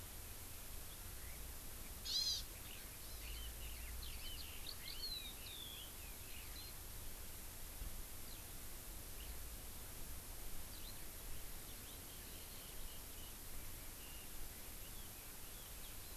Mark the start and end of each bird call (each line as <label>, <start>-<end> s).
Chinese Hwamei (Garrulax canorus), 1.2-6.9 s
Hawaii Amakihi (Chlorodrepanis virens), 2.1-2.5 s
Hawaii Amakihi (Chlorodrepanis virens), 3.0-3.4 s
Eurasian Skylark (Alauda arvensis), 4.4-4.8 s
Hawaii Amakihi (Chlorodrepanis virens), 4.9-5.5 s
Eurasian Skylark (Alauda arvensis), 8.3-8.5 s
Eurasian Skylark (Alauda arvensis), 10.7-11.0 s
Chinese Hwamei (Garrulax canorus), 11.7-16.2 s